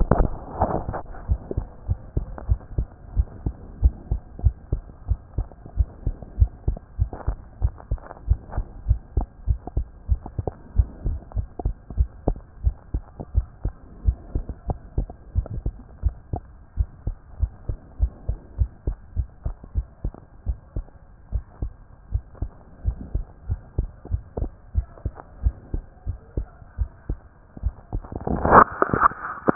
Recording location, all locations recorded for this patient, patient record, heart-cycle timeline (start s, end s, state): tricuspid valve (TV)
aortic valve (AV)+pulmonary valve (PV)+tricuspid valve (TV)+mitral valve (MV)
#Age: Child
#Sex: Female
#Height: 133.0 cm
#Weight: 25.0 kg
#Pregnancy status: False
#Murmur: Absent
#Murmur locations: nan
#Most audible location: nan
#Systolic murmur timing: nan
#Systolic murmur shape: nan
#Systolic murmur grading: nan
#Systolic murmur pitch: nan
#Systolic murmur quality: nan
#Diastolic murmur timing: nan
#Diastolic murmur shape: nan
#Diastolic murmur grading: nan
#Diastolic murmur pitch: nan
#Diastolic murmur quality: nan
#Outcome: Abnormal
#Campaign: 2014 screening campaign
0.00	1.88	unannotated
1.88	2.00	S1
2.00	2.16	systole
2.16	2.24	S2
2.24	2.48	diastole
2.48	2.60	S1
2.60	2.76	systole
2.76	2.86	S2
2.86	3.16	diastole
3.16	3.28	S1
3.28	3.44	systole
3.44	3.54	S2
3.54	3.80	diastole
3.80	3.94	S1
3.94	4.10	systole
4.10	4.20	S2
4.20	4.44	diastole
4.44	4.54	S1
4.54	4.72	systole
4.72	4.82	S2
4.82	5.08	diastole
5.08	5.20	S1
5.20	5.36	systole
5.36	5.46	S2
5.46	5.76	diastole
5.76	5.88	S1
5.88	6.06	systole
6.06	6.14	S2
6.14	6.38	diastole
6.38	6.50	S1
6.50	6.66	systole
6.66	6.78	S2
6.78	6.98	diastole
6.98	7.10	S1
7.10	7.26	systole
7.26	7.36	S2
7.36	7.62	diastole
7.62	7.74	S1
7.74	7.90	systole
7.90	8.00	S2
8.00	8.28	diastole
8.28	8.40	S1
8.40	8.56	systole
8.56	8.64	S2
8.64	8.88	diastole
8.88	9.00	S1
9.00	9.16	systole
9.16	9.28	S2
9.28	9.50	diastole
9.50	9.58	S1
9.58	9.76	systole
9.76	9.86	S2
9.86	10.10	diastole
10.10	10.20	S1
10.20	10.36	systole
10.36	10.46	S2
10.46	10.76	diastole
10.76	10.88	S1
10.88	11.06	systole
11.06	11.18	S2
11.18	11.36	diastole
11.36	11.48	S1
11.48	11.64	systole
11.64	11.74	S2
11.74	11.96	diastole
11.96	12.08	S1
12.08	12.26	systole
12.26	12.36	S2
12.36	12.64	diastole
12.64	12.76	S1
12.76	12.92	systole
12.92	13.02	S2
13.02	13.34	diastole
13.34	13.46	S1
13.46	13.64	systole
13.64	13.72	S2
13.72	14.06	diastole
14.06	14.18	S1
14.18	14.34	systole
14.34	14.44	S2
14.44	14.68	diastole
14.68	14.80	S1
14.80	14.96	systole
14.96	15.08	S2
15.08	15.36	diastole
15.36	15.46	S1
15.46	15.64	systole
15.64	15.72	S2
15.72	16.04	diastole
16.04	16.14	S1
16.14	16.32	systole
16.32	16.42	S2
16.42	16.78	diastole
16.78	16.88	S1
16.88	17.06	systole
17.06	17.16	S2
17.16	17.40	diastole
17.40	17.52	S1
17.52	17.68	systole
17.68	17.78	S2
17.78	18.00	diastole
18.00	18.12	S1
18.12	18.28	systole
18.28	18.38	S2
18.38	18.58	diastole
18.58	18.70	S1
18.70	18.86	systole
18.86	18.96	S2
18.96	19.16	diastole
19.16	19.28	S1
19.28	19.44	systole
19.44	19.54	S2
19.54	19.76	diastole
19.76	19.86	S1
19.86	20.04	systole
20.04	20.12	S2
20.12	20.46	diastole
20.46	20.58	S1
20.58	20.76	systole
20.76	20.86	S2
20.86	21.32	diastole
21.32	21.44	S1
21.44	21.62	systole
21.62	21.72	S2
21.72	22.12	diastole
22.12	22.24	S1
22.24	22.40	systole
22.40	22.50	S2
22.50	22.86	diastole
22.86	22.96	S1
22.96	23.14	systole
23.14	23.24	S2
23.24	23.50	diastole
23.50	23.60	S1
23.60	23.78	systole
23.78	23.88	S2
23.88	24.10	diastole
24.10	24.22	S1
24.22	24.40	systole
24.40	24.50	S2
24.50	24.76	diastole
24.76	24.86	S1
24.86	25.04	systole
25.04	25.12	S2
25.12	25.42	diastole
25.42	25.54	S1
25.54	25.74	systole
25.74	25.82	S2
25.82	26.08	diastole
26.08	26.18	S1
26.18	26.36	systole
26.36	26.46	S2
26.46	26.78	diastole
26.78	26.90	S1
26.90	27.08	systole
27.08	27.18	S2
27.18	27.64	diastole
27.64	29.55	unannotated